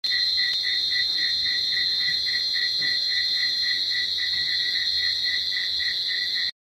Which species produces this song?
Cyclochila australasiae